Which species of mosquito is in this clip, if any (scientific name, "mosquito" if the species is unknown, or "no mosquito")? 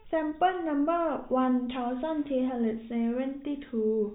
no mosquito